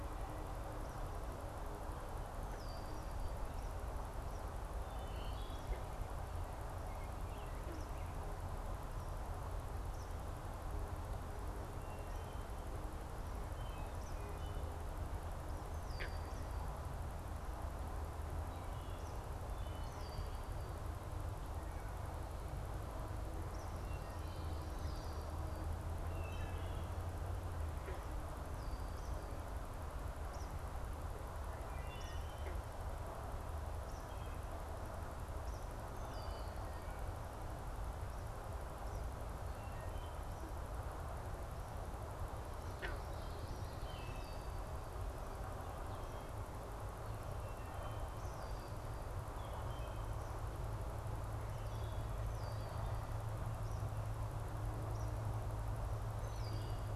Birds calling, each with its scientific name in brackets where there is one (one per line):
Red-winged Blackbird (Agelaius phoeniceus)
Wood Thrush (Hylocichla mustelina)
American Robin (Turdus migratorius)
Eastern Kingbird (Tyrannus tyrannus)